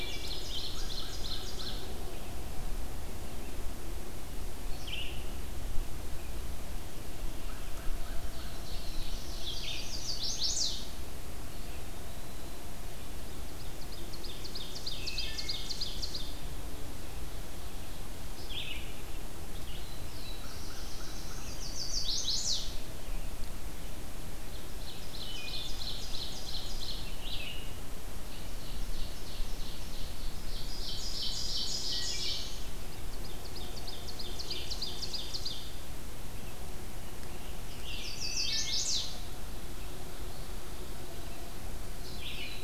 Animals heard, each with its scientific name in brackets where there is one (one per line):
Red-eyed Vireo (Vireo olivaceus)
Ovenbird (Seiurus aurocapilla)
Chestnut-sided Warbler (Setophaga pensylvanica)
Eastern Wood-Pewee (Contopus virens)
Wood Thrush (Hylocichla mustelina)
American Crow (Corvus brachyrhynchos)
Black-throated Blue Warbler (Setophaga caerulescens)